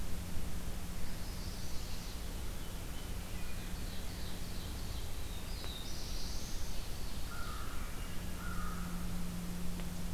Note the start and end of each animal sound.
[0.85, 2.27] Chestnut-sided Warbler (Setophaga pensylvanica)
[3.37, 5.15] Ovenbird (Seiurus aurocapilla)
[4.89, 6.84] Black-throated Blue Warbler (Setophaga caerulescens)
[7.14, 9.46] American Crow (Corvus brachyrhynchos)

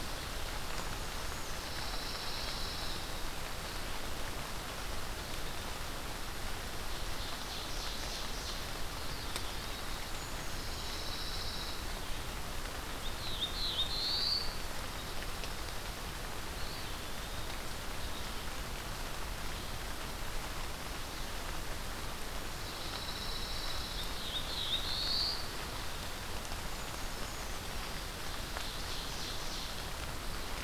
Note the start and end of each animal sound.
[0.66, 1.66] Brown Creeper (Certhia americana)
[1.31, 3.14] Pine Warbler (Setophaga pinus)
[6.59, 10.40] Ovenbird (Seiurus aurocapilla)
[10.10, 11.02] Brown Creeper (Certhia americana)
[10.45, 12.00] Pine Warbler (Setophaga pinus)
[12.81, 14.88] Black-throated Blue Warbler (Setophaga caerulescens)
[16.32, 17.94] Eastern Wood-Pewee (Contopus virens)
[22.47, 24.28] Pine Warbler (Setophaga pinus)
[23.84, 25.51] Black-throated Blue Warbler (Setophaga caerulescens)
[26.66, 27.98] Brown Creeper (Certhia americana)
[27.73, 29.78] Ovenbird (Seiurus aurocapilla)

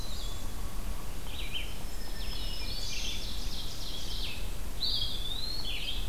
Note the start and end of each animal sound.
[0.00, 6.09] Red-eyed Vireo (Vireo olivaceus)
[1.82, 3.26] Black-throated Green Warbler (Setophaga virens)
[1.92, 3.06] Hermit Thrush (Catharus guttatus)
[2.55, 4.56] Ovenbird (Seiurus aurocapilla)
[4.69, 5.77] Eastern Wood-Pewee (Contopus virens)

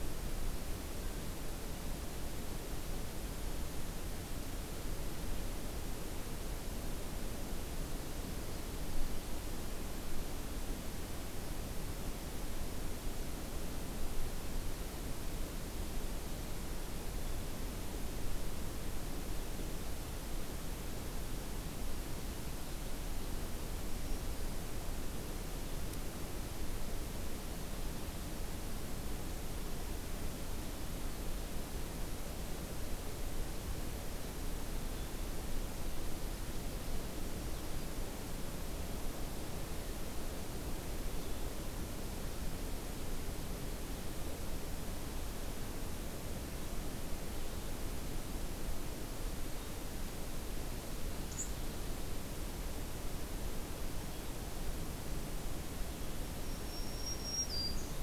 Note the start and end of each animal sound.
[23.75, 24.76] Black-throated Green Warbler (Setophaga virens)
[51.21, 51.54] unidentified call
[56.34, 58.02] Black-throated Green Warbler (Setophaga virens)

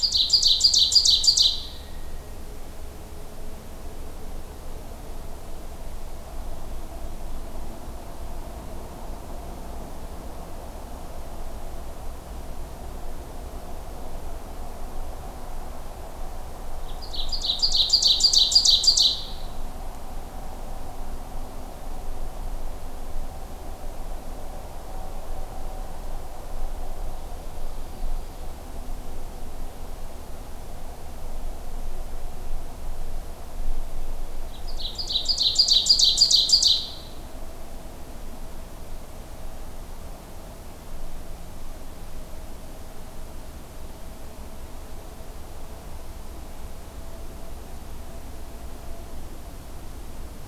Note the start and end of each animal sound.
[0.00, 1.67] Ovenbird (Seiurus aurocapilla)
[16.77, 19.45] Ovenbird (Seiurus aurocapilla)
[34.42, 37.11] Ovenbird (Seiurus aurocapilla)

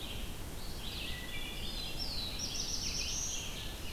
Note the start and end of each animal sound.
[0.00, 3.92] Red-eyed Vireo (Vireo olivaceus)
[0.99, 1.97] Wood Thrush (Hylocichla mustelina)
[1.47, 3.74] Black-throated Blue Warbler (Setophaga caerulescens)

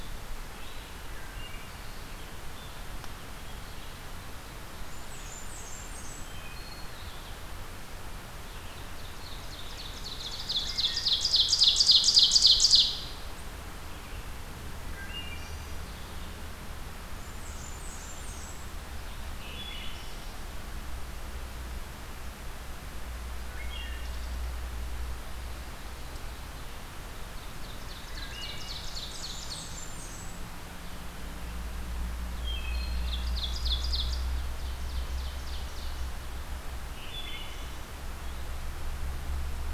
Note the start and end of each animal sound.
[0.00, 26.89] Red-eyed Vireo (Vireo olivaceus)
[1.07, 1.85] Wood Thrush (Hylocichla mustelina)
[4.65, 6.32] Blackburnian Warbler (Setophaga fusca)
[6.15, 6.92] Wood Thrush (Hylocichla mustelina)
[8.49, 13.06] Ovenbird (Seiurus aurocapilla)
[10.42, 11.39] Wood Thrush (Hylocichla mustelina)
[14.88, 15.89] Wood Thrush (Hylocichla mustelina)
[17.10, 18.83] Blackburnian Warbler (Setophaga fusca)
[19.26, 20.41] Wood Thrush (Hylocichla mustelina)
[23.49, 24.43] Wood Thrush (Hylocichla mustelina)
[27.33, 29.87] Ovenbird (Seiurus aurocapilla)
[28.18, 28.79] Wood Thrush (Hylocichla mustelina)
[28.55, 30.64] Blackburnian Warbler (Setophaga fusca)
[30.58, 38.69] Red-eyed Vireo (Vireo olivaceus)
[32.40, 33.33] Wood Thrush (Hylocichla mustelina)
[32.47, 36.21] Ovenbird (Seiurus aurocapilla)
[36.82, 37.86] Wood Thrush (Hylocichla mustelina)

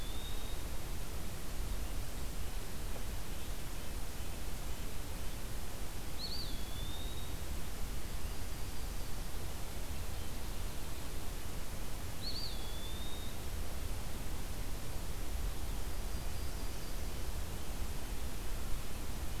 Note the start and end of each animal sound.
[0.00, 1.40] Eastern Wood-Pewee (Contopus virens)
[1.96, 5.10] Red-breasted Nuthatch (Sitta canadensis)
[5.93, 7.58] Eastern Wood-Pewee (Contopus virens)
[7.86, 9.37] Yellow-rumped Warbler (Setophaga coronata)
[11.78, 13.70] Eastern Wood-Pewee (Contopus virens)
[15.72, 17.33] Yellow-rumped Warbler (Setophaga coronata)

